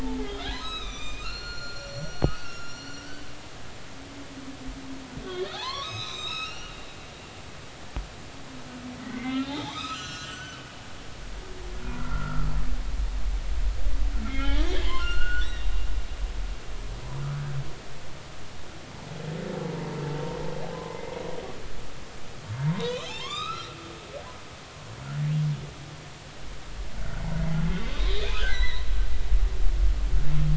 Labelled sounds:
0.0	3.3	humpback whale, 0.80 to 7.6 kHz
5.2	6.8	humpback whale, 0.80 to 6.3 kHz
9.1	10.7	humpback whale, 0.80 to 7.0 kHz
11.9	12.5	humpback whale, 1.2 to 1.5 kHz
14.2	15.7	humpback whale, 0.96 to 3.9 kHz
20.7	21.1	humpback whale, 0.96 to 2.1 kHz
22.7	23.8	humpback whale, 0.80 to 5.1 kHz
28.0	28.9	humpback whale, 1.4 to 4.2 kHz

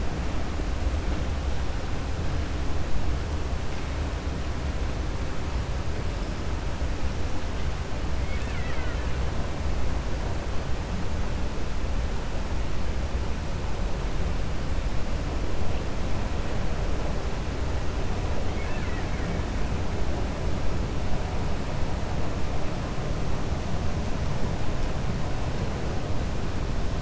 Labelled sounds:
8.2	9.1	killer whale, Bigg's (transient), 1.3 to 3.9 kHz
18.4	19.4	killer whale, Bigg's (transient), 1.4 to 3.5 kHz

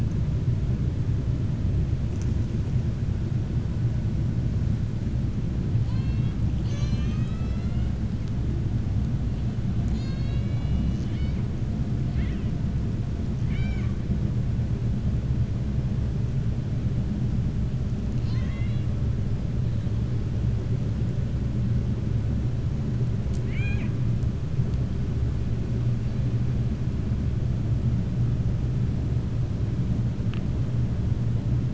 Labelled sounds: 5.7	7.9	killer whale, 0.94 to 7.9 kHz
12.0	12.5	killer whale, 1.3 to 4.2 kHz
13.4	13.9	killer whale, 0.80 to 6.9 kHz
18.1	18.9	killer whale, 1.1 to 6.7 kHz
23.3	23.9	killer whale, 0.81 to 4.1 kHz

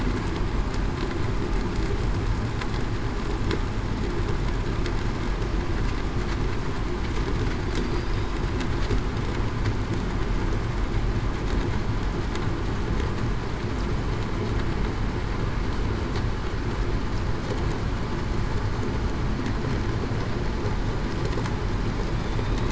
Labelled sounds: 7.8	8.1	killer whale, southern resident, 4.6 to 4.9 kHz

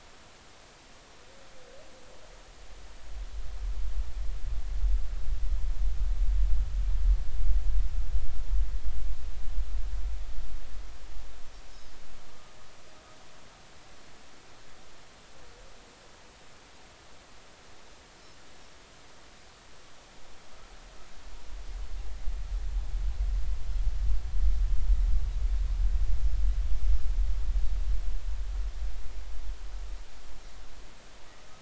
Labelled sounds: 11.7	11.9	Pacific white-sided dolphin, 4.9 to 5.4 kHz

